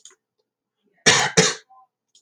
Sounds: Cough